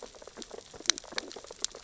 {"label": "biophony, sea urchins (Echinidae)", "recorder": "SoundTrap 600 or HydroMoth"}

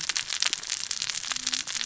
{"label": "biophony, cascading saw", "recorder": "SoundTrap 600 or HydroMoth"}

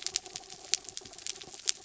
{"label": "anthrophony, mechanical", "recorder": "SoundTrap 300"}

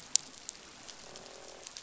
{"label": "biophony, croak", "recorder": "SoundTrap 500"}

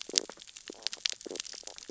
{"label": "biophony, stridulation", "recorder": "SoundTrap 600 or HydroMoth"}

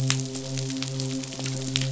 {"label": "biophony, midshipman", "recorder": "SoundTrap 500"}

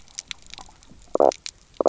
{"label": "biophony, knock croak", "recorder": "SoundTrap 300"}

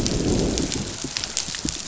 {"label": "biophony, growl", "recorder": "SoundTrap 500"}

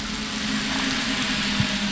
{"label": "anthrophony, boat engine", "recorder": "SoundTrap 500"}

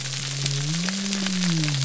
{"label": "biophony", "recorder": "SoundTrap 300"}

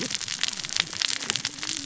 {"label": "biophony, cascading saw", "recorder": "SoundTrap 600 or HydroMoth"}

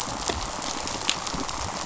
{"label": "biophony, rattle response", "recorder": "SoundTrap 500"}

